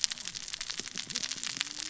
{"label": "biophony, cascading saw", "recorder": "SoundTrap 600 or HydroMoth"}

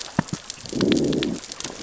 {"label": "biophony, growl", "recorder": "SoundTrap 600 or HydroMoth"}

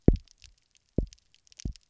{"label": "biophony, double pulse", "recorder": "SoundTrap 300"}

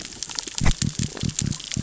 {"label": "biophony", "recorder": "SoundTrap 600 or HydroMoth"}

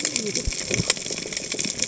{"label": "biophony, cascading saw", "recorder": "HydroMoth"}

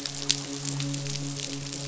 {"label": "biophony, midshipman", "recorder": "SoundTrap 500"}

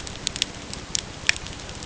{"label": "ambient", "recorder": "HydroMoth"}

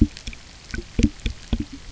{"label": "geophony, waves", "recorder": "SoundTrap 300"}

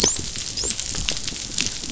{"label": "biophony, dolphin", "recorder": "SoundTrap 500"}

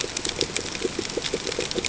{"label": "ambient", "recorder": "HydroMoth"}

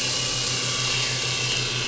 {"label": "anthrophony, boat engine", "recorder": "SoundTrap 500"}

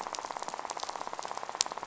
{"label": "biophony, rattle", "recorder": "SoundTrap 500"}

